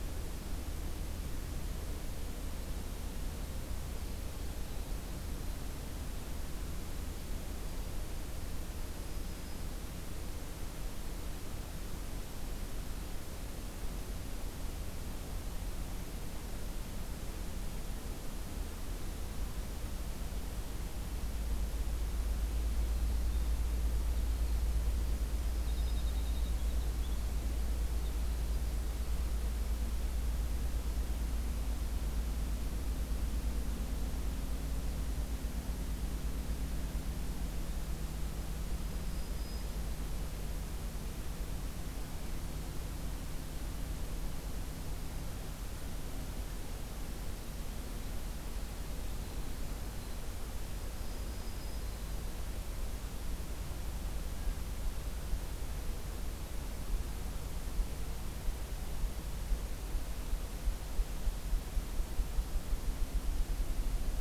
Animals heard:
Winter Wren (Troglodytes hiemalis), Black-throated Green Warbler (Setophaga virens)

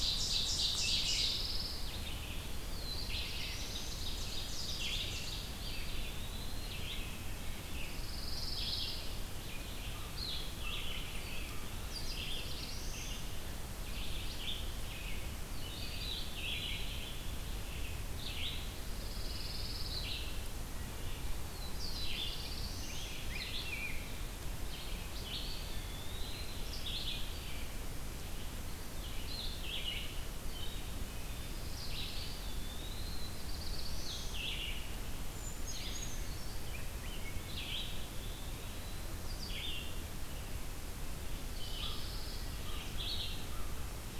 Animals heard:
Brown Creeper (Certhia americana), Wood Thrush (Hylocichla mustelina), Black-throated Blue Warbler (Setophaga caerulescens), American Crow (Corvus brachyrhynchos), Rose-breasted Grosbeak (Pheucticus ludovicianus), Red-eyed Vireo (Vireo olivaceus), Eastern Wood-Pewee (Contopus virens), Pine Warbler (Setophaga pinus), Ovenbird (Seiurus aurocapilla)

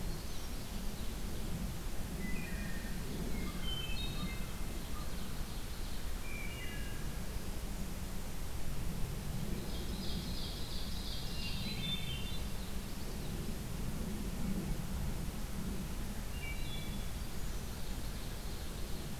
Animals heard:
Wood Thrush (Hylocichla mustelina), American Crow (Corvus brachyrhynchos), Common Yellowthroat (Geothlypis trichas), Ovenbird (Seiurus aurocapilla), Hermit Thrush (Catharus guttatus)

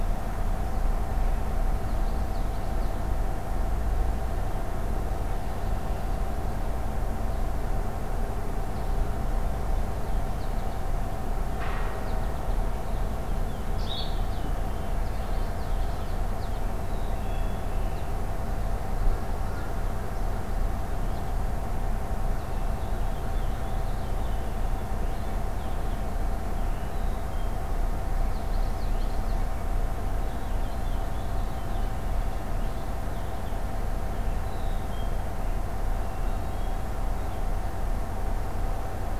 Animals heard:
Purple Finch (Haemorhous purpureus), Common Yellowthroat (Geothlypis trichas), Hermit Thrush (Catharus guttatus), Black-capped Chickadee (Poecile atricapillus), Blue-headed Vireo (Vireo solitarius), American Goldfinch (Spinus tristis)

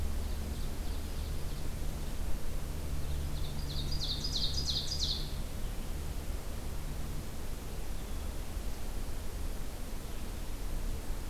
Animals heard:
Ovenbird (Seiurus aurocapilla)

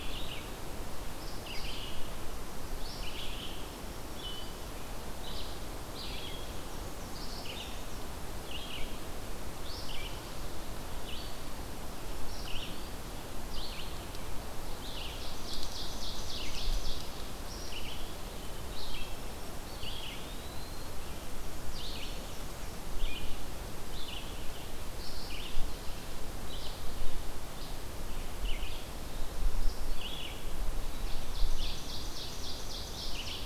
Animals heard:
Eastern Wood-Pewee (Contopus virens), Black-throated Green Warbler (Setophaga virens), Red-eyed Vireo (Vireo olivaceus), Ovenbird (Seiurus aurocapilla), Black-and-white Warbler (Mniotilta varia)

